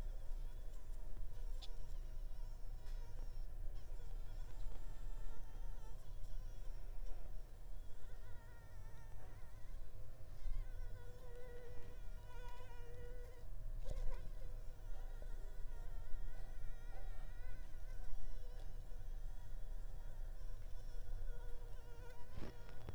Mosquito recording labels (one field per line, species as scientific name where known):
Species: Anopheles arabiensis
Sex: female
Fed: unfed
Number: one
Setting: cup